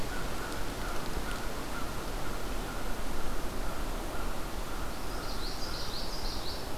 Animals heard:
Common Yellowthroat (Geothlypis trichas), American Crow (Corvus brachyrhynchos)

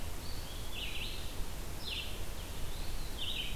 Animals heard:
Red-eyed Vireo (Vireo olivaceus), Eastern Wood-Pewee (Contopus virens)

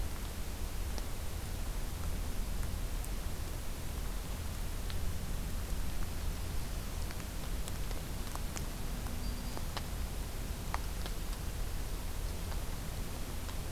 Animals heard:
Black-throated Green Warbler (Setophaga virens)

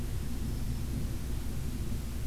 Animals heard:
Black-throated Green Warbler (Setophaga virens)

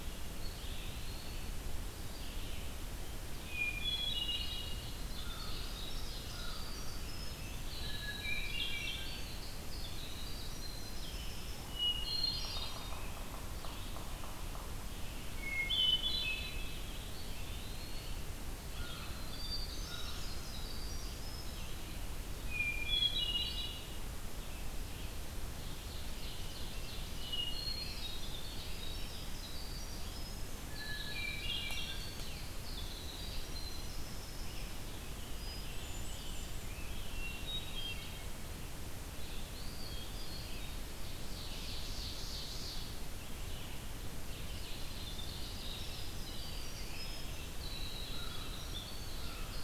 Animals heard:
Eastern Wood-Pewee (Contopus virens), Winter Wren (Troglodytes hiemalis), Ovenbird (Seiurus aurocapilla), Hermit Thrush (Catharus guttatus), Red-eyed Vireo (Vireo olivaceus), American Crow (Corvus brachyrhynchos), Scarlet Tanager (Piranga olivacea), Yellow-bellied Sapsucker (Sphyrapicus varius)

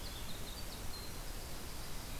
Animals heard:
Winter Wren (Troglodytes hiemalis)

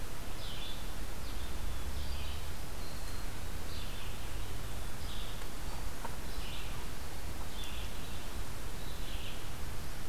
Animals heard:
Black-throated Green Warbler (Setophaga virens), Red-eyed Vireo (Vireo olivaceus)

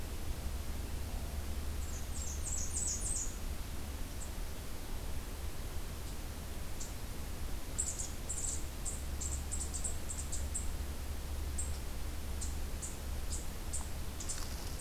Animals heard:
Blackburnian Warbler (Setophaga fusca)

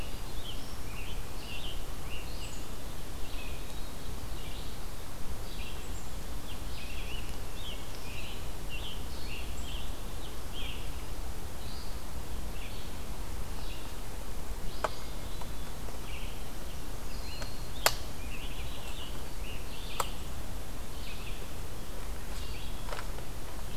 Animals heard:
Hermit Thrush (Catharus guttatus), Red-eyed Vireo (Vireo olivaceus), Scarlet Tanager (Piranga olivacea)

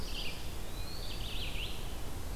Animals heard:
Red-eyed Vireo (Vireo olivaceus), Eastern Wood-Pewee (Contopus virens)

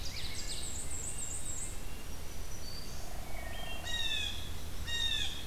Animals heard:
Ovenbird (Seiurus aurocapilla), Black-and-white Warbler (Mniotilta varia), Red-breasted Nuthatch (Sitta canadensis), Wood Thrush (Hylocichla mustelina), Hairy Woodpecker (Dryobates villosus), Blue Jay (Cyanocitta cristata), Black-throated Green Warbler (Setophaga virens)

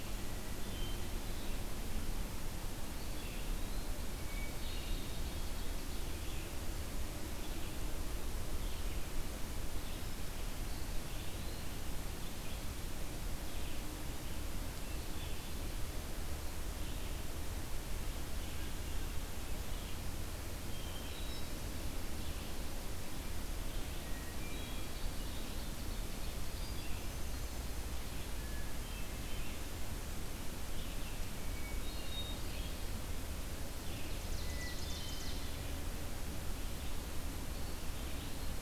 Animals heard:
Red-eyed Vireo (Vireo olivaceus), Hermit Thrush (Catharus guttatus), Ovenbird (Seiurus aurocapilla), Eastern Wood-Pewee (Contopus virens)

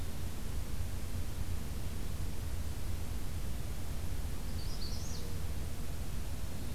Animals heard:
Magnolia Warbler (Setophaga magnolia)

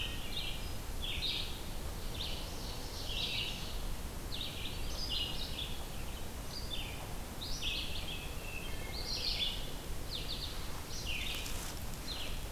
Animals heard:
Wood Thrush (Hylocichla mustelina), Red-eyed Vireo (Vireo olivaceus), Ovenbird (Seiurus aurocapilla)

